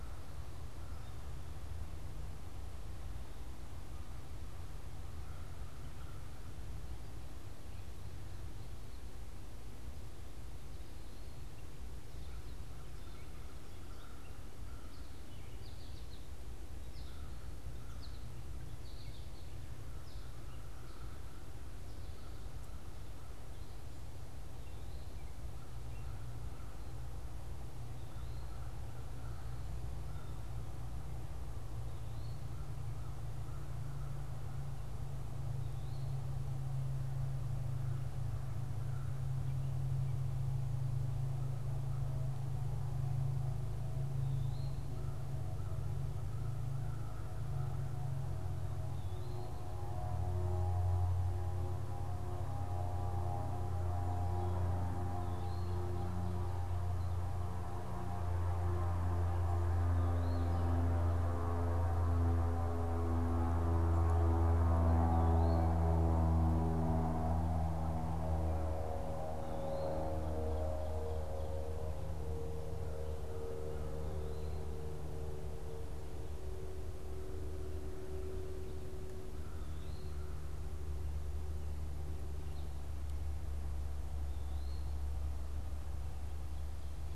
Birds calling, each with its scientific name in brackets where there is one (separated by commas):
Eastern Wood-Pewee (Contopus virens), American Crow (Corvus brachyrhynchos), American Goldfinch (Spinus tristis)